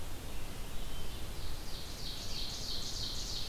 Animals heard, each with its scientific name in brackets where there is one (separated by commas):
Ovenbird (Seiurus aurocapilla), Red-eyed Vireo (Vireo olivaceus), Hermit Thrush (Catharus guttatus)